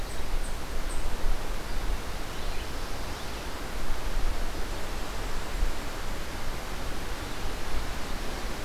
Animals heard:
forest ambience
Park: Marsh-Billings-Rockefeller National Historical Park